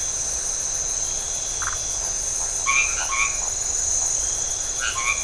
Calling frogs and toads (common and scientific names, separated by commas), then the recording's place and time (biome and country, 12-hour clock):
Phyllomedusa distincta, white-edged tree frog (Boana albomarginata)
Atlantic Forest, Brazil, 8:30pm